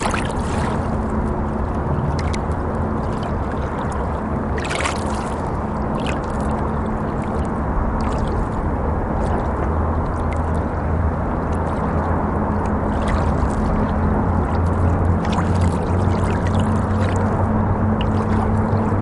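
Water flowing in a river. 0.0 - 19.0

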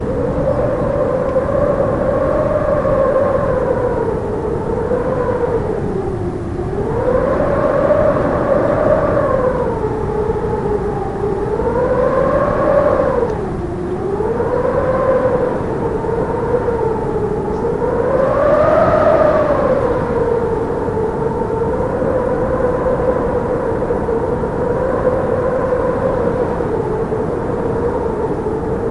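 Loud wind howling continuously through an open window. 0.0 - 28.9

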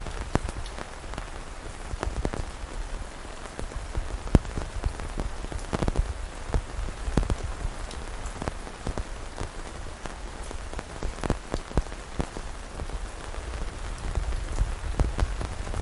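Rain falling. 0.0 - 15.8

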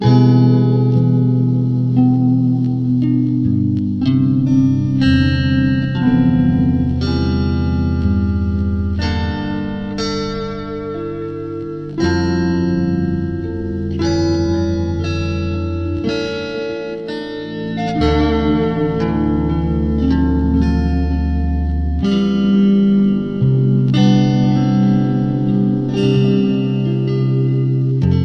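A guitar playing a solo. 0.0 - 28.2

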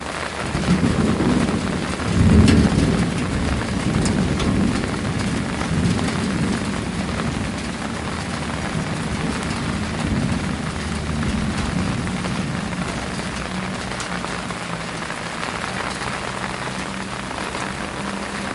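Heavy rainfall combined with strong winds and occasional thunder creates an intense and stormy ambiance. 0.0 - 18.5

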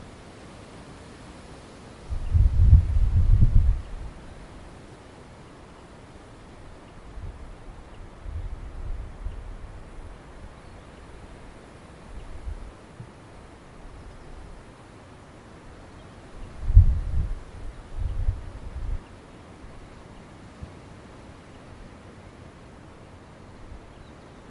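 A muffled gust of wind. 2.1 - 3.9
A muffled gust of wind repeats. 16.5 - 19.0

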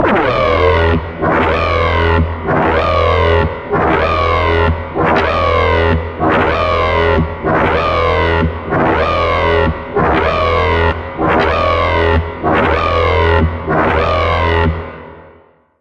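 An abstract alien UI alarm with a sharp, digital button-like synthesized sound. 0.0 - 1.0
An abstract, synthesized alarm sound is triggered by a button. 2.5 - 14.9

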